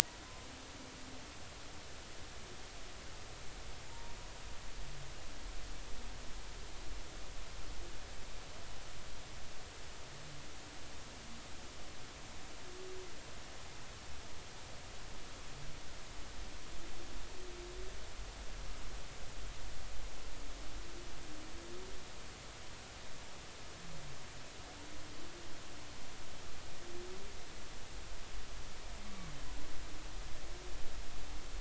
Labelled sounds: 3.9	4.2	humpback whale, 0.86 to 0.99 kHz
29.0	29.3	humpback whale, 1.1 to 1.2 kHz

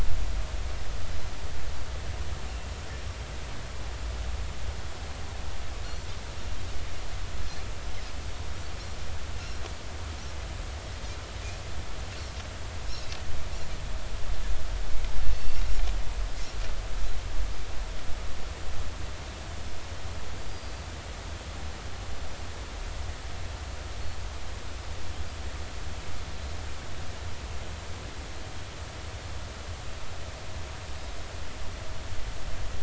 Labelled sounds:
15.2	15.7	Pacific white-sided dolphin, 2.6 to 4.6 kHz

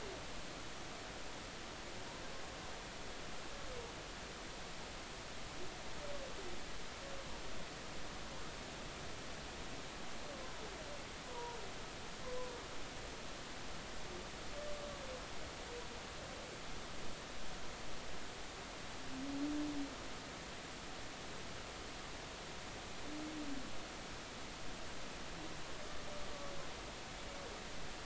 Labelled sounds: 11.3	11.6	humpback whale, 0.90 to 1.0 kHz

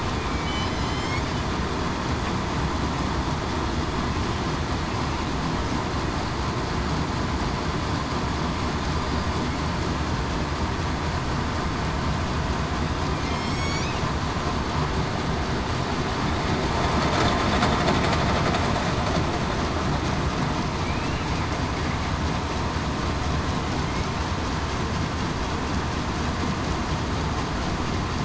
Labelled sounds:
0.2	1.2	killer whale, southern resident, 2.0 to 5.5 kHz
13.3	13.8	killer whale, southern resident, 3.1 to 7.8 kHz
20.8	21.2	killer whale, southern resident, 2.2 to 2.8 kHz

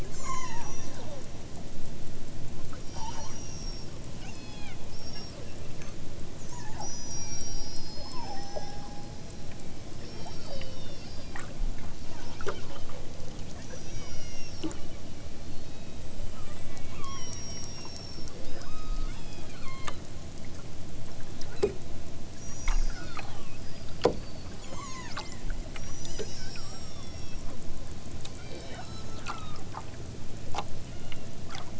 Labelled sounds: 0.0	1.1	killer whale, southern Alaska resident, 0.74 to 8.0 kHz
2.7	3.9	killer whale, southern Alaska resident, 0.60 to 8.0 kHz
4.1	6.0	killer whale, southern Alaska resident, 0.46 to 8.0 kHz
6.4	11.5	killer whale, southern Alaska resident, 0.51 to 8.0 kHz
13.7	14.6	killer whale, southern Alaska resident, 0.64 to 8.0 kHz
15.4	20.0	killer whale, southern Alaska resident, 0.74 to 8.0 kHz
21.4	21.8	killer whale, southern Alaska resident, 1.1 to 8.0 kHz
22.3	23.6	killer whale, southern Alaska resident, 0.83 to 8.0 kHz
24.5	27.6	killer whale, southern Alaska resident, 0.55 to 8.0 kHz
28.3	29.7	killer whale, southern Alaska resident, 0.87 to 8.0 kHz
30.8	31.4	killer whale, southern Alaska resident, 1.0 to 3.3 kHz

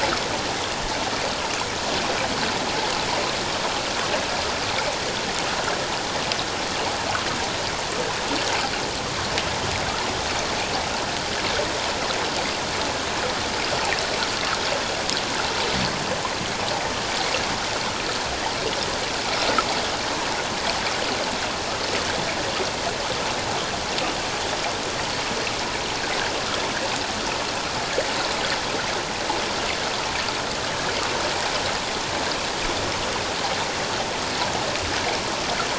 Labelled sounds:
30.6	30.9	water noise, 1.6 to 1.7 kHz

